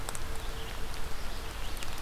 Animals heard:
Red-eyed Vireo (Vireo olivaceus)

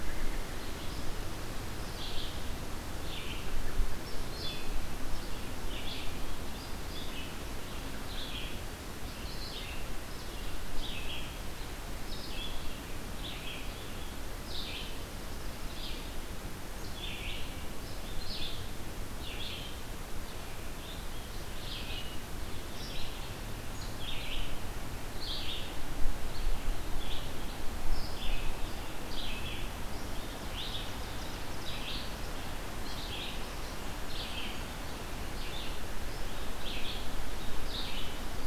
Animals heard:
American Robin (Turdus migratorius), Ovenbird (Seiurus aurocapilla), Red-eyed Vireo (Vireo olivaceus)

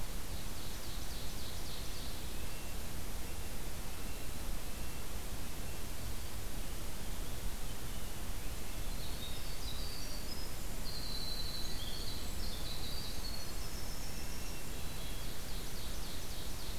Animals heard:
Red-breasted Nuthatch (Sitta canadensis), Winter Wren (Troglodytes hiemalis), Hermit Thrush (Catharus guttatus), Ovenbird (Seiurus aurocapilla)

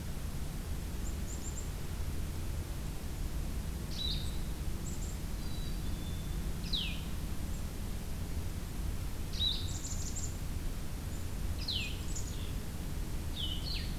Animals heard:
Black-capped Chickadee (Poecile atricapillus), Blue-headed Vireo (Vireo solitarius)

